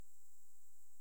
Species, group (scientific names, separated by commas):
Leptophyes punctatissima, Orthoptera